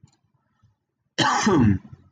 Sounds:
Cough